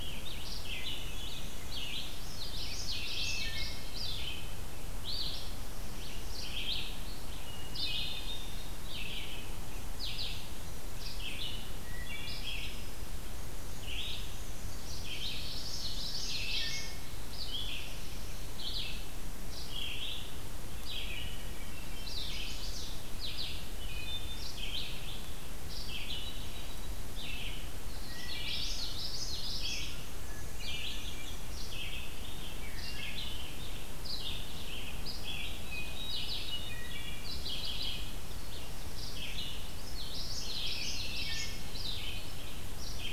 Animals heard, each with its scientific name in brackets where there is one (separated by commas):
Black-and-white Warbler (Mniotilta varia), Chestnut-sided Warbler (Setophaga pensylvanica), Red-eyed Vireo (Vireo olivaceus), Hermit Thrush (Catharus guttatus), Wood Thrush (Hylocichla mustelina), Common Yellowthroat (Geothlypis trichas)